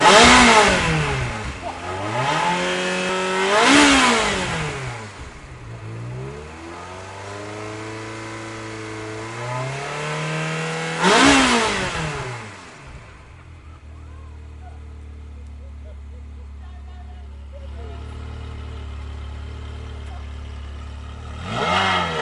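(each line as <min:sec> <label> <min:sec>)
0:00.0 A sports car accelerating rapidly. 0:01.5
0:00.0 A car accelerates irregularly. 0:12.9
0:02.2 A sports car accelerates. 0:05.3
0:17.7 A car engine revving. 0:22.2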